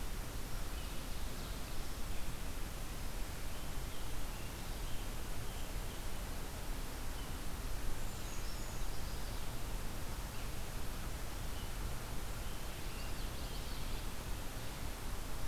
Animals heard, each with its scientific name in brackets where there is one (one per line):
Brown Creeper (Certhia americana)
Common Yellowthroat (Geothlypis trichas)
Scarlet Tanager (Piranga olivacea)